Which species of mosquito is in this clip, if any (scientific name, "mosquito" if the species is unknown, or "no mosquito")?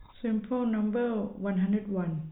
no mosquito